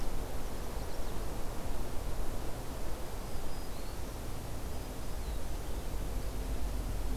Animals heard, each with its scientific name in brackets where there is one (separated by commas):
Chestnut-sided Warbler (Setophaga pensylvanica), Black-throated Green Warbler (Setophaga virens), Blue-headed Vireo (Vireo solitarius)